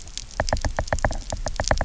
{"label": "biophony, knock", "recorder": "SoundTrap 300"}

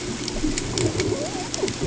{"label": "ambient", "recorder": "HydroMoth"}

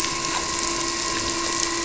{"label": "anthrophony, boat engine", "recorder": "SoundTrap 300"}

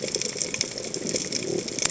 {"label": "biophony", "recorder": "HydroMoth"}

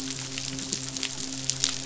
{"label": "biophony, midshipman", "recorder": "SoundTrap 500"}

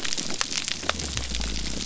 {"label": "biophony", "recorder": "SoundTrap 300"}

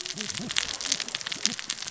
{"label": "biophony, cascading saw", "recorder": "SoundTrap 600 or HydroMoth"}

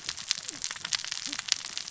{"label": "biophony, cascading saw", "recorder": "SoundTrap 600 or HydroMoth"}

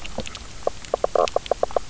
{"label": "biophony, knock croak", "recorder": "SoundTrap 300"}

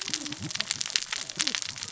{"label": "biophony, cascading saw", "recorder": "SoundTrap 600 or HydroMoth"}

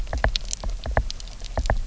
{"label": "biophony", "recorder": "SoundTrap 300"}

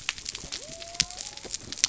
{"label": "biophony", "recorder": "SoundTrap 300"}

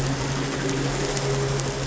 {"label": "anthrophony, boat engine", "recorder": "SoundTrap 500"}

